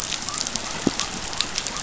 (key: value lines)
label: biophony
recorder: SoundTrap 500